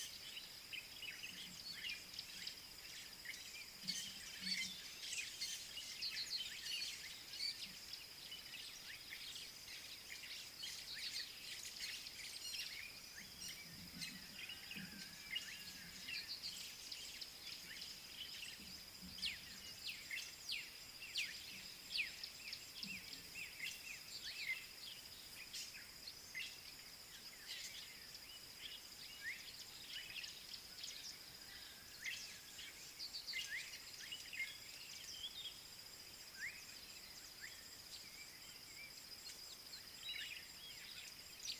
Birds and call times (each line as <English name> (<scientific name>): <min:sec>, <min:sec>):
Black-backed Puffback (Dryoscopus cubla): 0:19.2, 0:21.9
Slate-colored Boubou (Laniarius funebris): 0:36.5